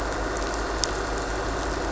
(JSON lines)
{"label": "anthrophony, boat engine", "recorder": "SoundTrap 500"}